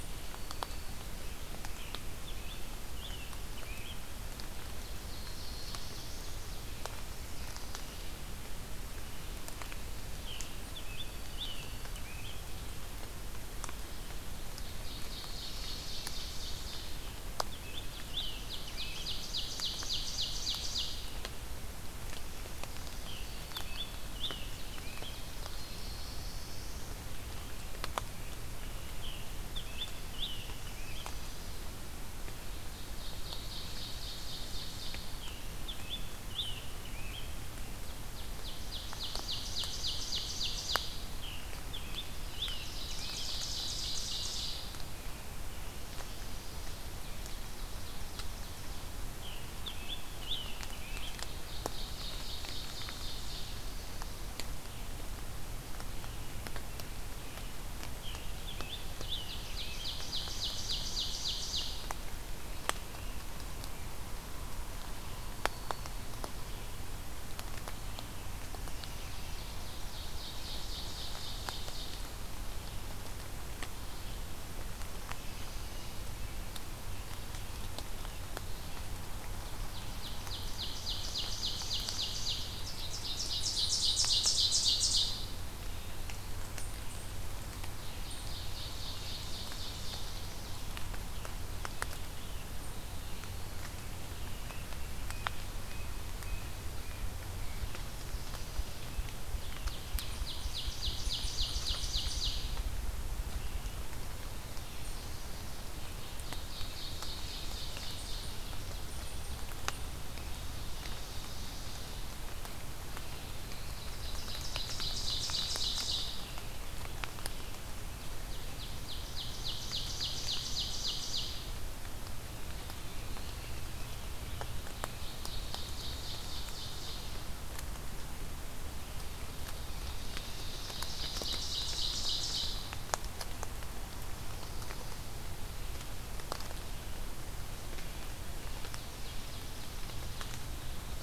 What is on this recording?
Black-throated Green Warbler, Scarlet Tanager, Ovenbird, Black-throated Blue Warbler, Tufted Titmouse, Ruffed Grouse